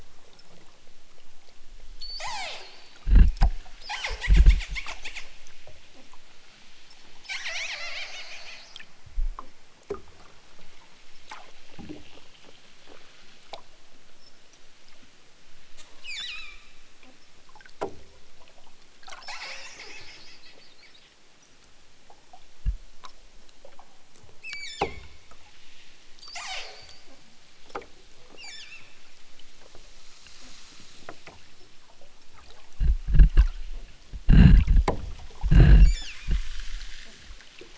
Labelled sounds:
1.9	3.0	killer whale, southern Alaska resident, 0.23 to 8.0 kHz
16.0	16.8	killer whale, southern Alaska resident, 1.0 to 8.0 kHz
24.3	25.2	killer whale, southern Alaska resident, 0.69 to 8.0 kHz
26.1	27.1	killer whale, southern Alaska resident, 0.14 to 8.0 kHz
28.3	29.1	killer whale, southern Alaska resident, 0.88 to 8.0 kHz
35.8	36.4	killer whale, southern Alaska resident, 2.0 to 8.0 kHz

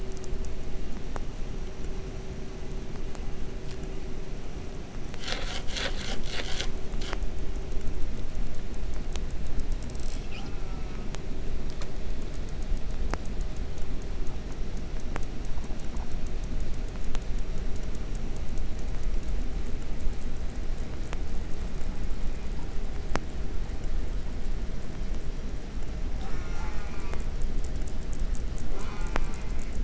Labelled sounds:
9.8	10.4	killer whale, southern resident, J pod, call S08i, 0.48 to 8.0 kHz
10.4	11.1	killer whale, southern resident, J pod, call S04, 0.32 to 7.3 kHz
26.1	27.4	killer whale, southern resident, J pod, call S04, 0.36 to 8.0 kHz
28.7	29.8	killer whale, southern resident, J pod, call S04, 0.33 to 6.3 kHz

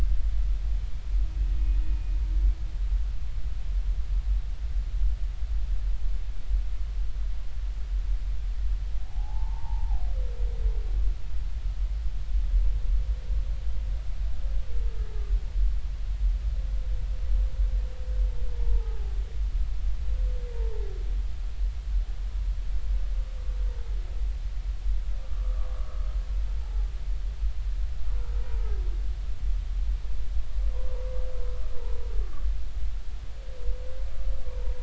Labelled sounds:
1.5	1.8	humpback whale, 2.46 to 2.53 kHz
9.0	10.0	humpback whale, 0.80 to 1.1 kHz
18.7	19.1	humpback whale, 0.80 to 0.96 kHz
25.2	25.7	humpback whale, 1.1 to 1.3 kHz
26.6	26.9	humpback whale, 0.80 to 0.93 kHz
28.4	28.8	humpback whale, 0.80 to 0.99 kHz
31.8	32.0	humpback whale, 0.86 to 1.0 kHz

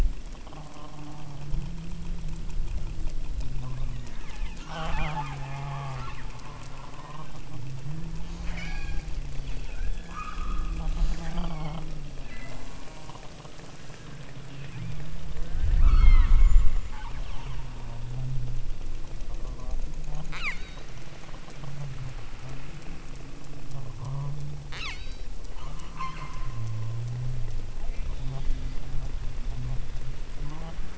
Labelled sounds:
3.5	4.3	killer whale, southern Alaska resident, 0.55 to 3.9 kHz
4.6	6.3	killer whale, southern Alaska resident, 0.41 to 7.1 kHz
7.0	7.5	killer whale, southern Alaska resident, 1.4 to 3.8 kHz
8.3	9.1	killer whale, southern Alaska resident, 0.48 to 8.0 kHz
10.0	11.9	killer whale, southern Alaska resident, 0.52 to 8.0 kHz
12.2	13.4	killer whale, southern Alaska resident, 0.55 to 8.0 kHz
14.4	15.1	killer whale, southern Alaska resident, 2.1 to 4.1 kHz
15.7	17.9	killer whale, southern Alaska resident, 0.71 to 7.3 kHz
20.0	21.0	killer whale, southern Alaska resident, 0.55 to 8.0 kHz
24.7	25.3	killer whale, southern Alaska resident, 0.71 to 8.0 kHz
25.9	26.7	killer whale, southern Alaska resident, 0.78 to 8.0 kHz
27.8	28.6	killer whale, southern Alaska resident, 0.37 to 3.9 kHz

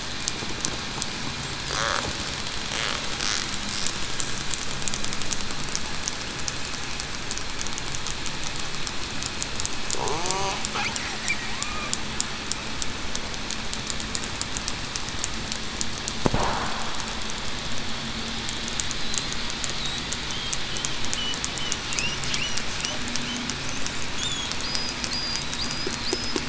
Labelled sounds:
24.1	24.5	killer whale, southern resident, 3.2 to 3.7 kHz

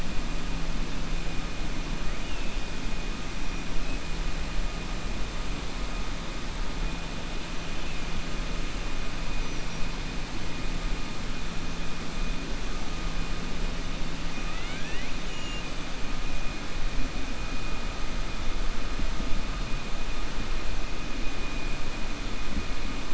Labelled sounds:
14.4	15.1	killer whale, 1.3 to 3.8 kHz

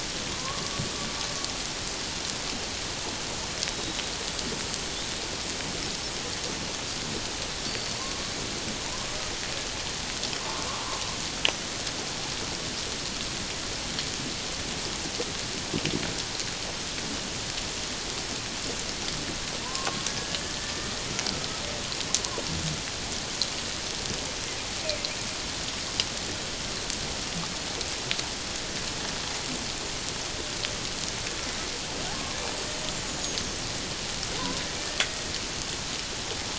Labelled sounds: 3.7	4.0	killer whale, 3.8 to 3.9 kHz
7.7	8.2	killer whale, 0.91 to 4.7 kHz
10.4	10.7	killer whale, 1.0 to 1.2 kHz
19.6	21.0	killer whale, 0.91 to 1.8 kHz

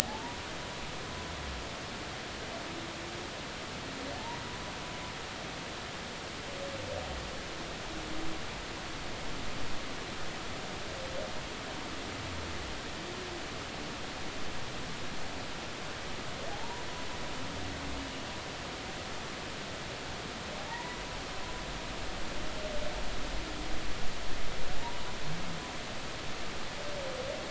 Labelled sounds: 0.0	0.4	humpback whale, 0.80 to 0.99 kHz
16.5	16.8	humpback whale, 0.80 to 1.0 kHz
20.7	21.0	humpback whale, 0.86 to 2.0 kHz

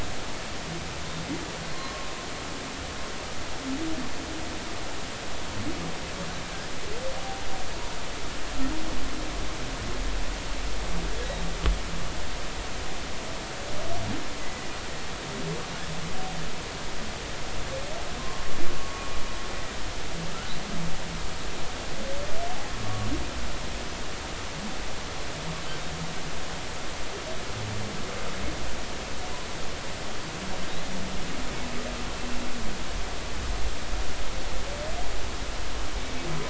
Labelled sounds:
1.7	2.1	humpback whale, 0.96 to 1.1 kHz
14.4	14.7	humpback whale, 1.9 to 2.1 kHz
18.2	18.5	humpback whale, 0.99 to 1.2 kHz
18.8	19.1	humpback whale, 1.1 to 1.2 kHz
22.8	23.1	humpback whale, 1.1 to 1.2 kHz

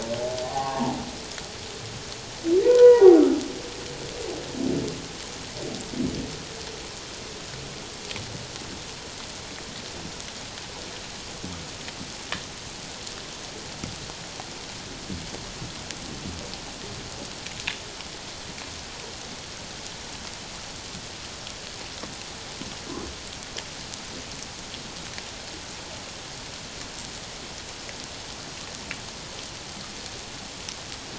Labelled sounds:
2.6	3.2	humpback whale, 0.78 to 2.0 kHz

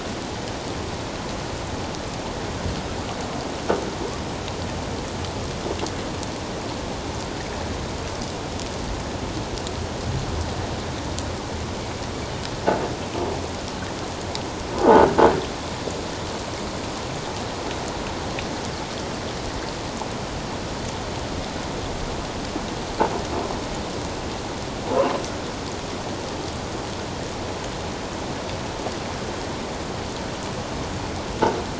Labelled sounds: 14.8	15.1	croaking sound likely from a nearby submerged object, 0.78 to 1.6 kHz

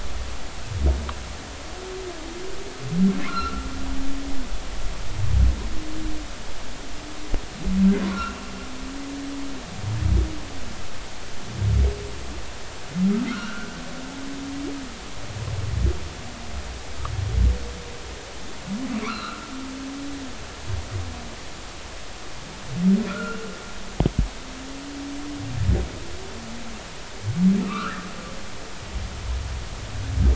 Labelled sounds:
3.2	3.7	humpback whale, 0.99 to 1.5 kHz
8.1	8.4	humpback whale, 1.3 to 2.8 kHz
13.3	13.7	humpback whale, 1.2 to 1.6 kHz
19.0	19.5	humpback whale, 0.99 to 4.3 kHz
23.1	23.4	humpback whale, 1.2 to 2.9 kHz
27.6	28.0	humpback whale, 1.1 to 2.8 kHz

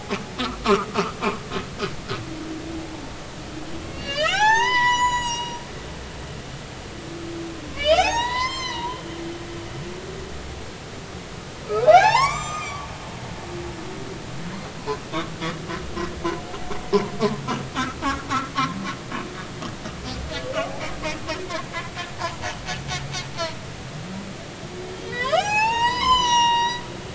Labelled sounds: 0.6	0.9	humpback whale, 0.93 to 1.5 kHz
3.9	5.6	humpback whale, 0.80 to 8.0 kHz
7.7	9.0	humpback whale, 0.80 to 7.3 kHz
11.7	12.9	humpback whale, 0.80 to 8.0 kHz
22.2	22.5	humpback whale, 0.83 to 1.1 kHz
25.0	26.8	humpback whale, 0.80 to 7.3 kHz

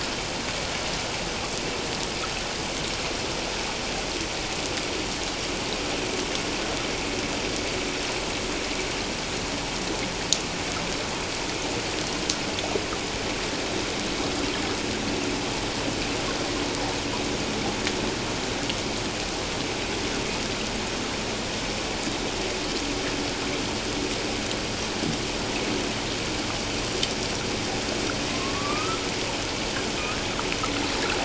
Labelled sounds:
28.3	29.0	humpback whale, 1.0 to 1.4 kHz

